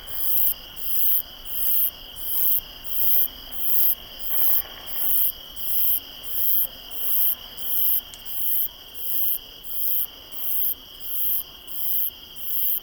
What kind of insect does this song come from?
orthopteran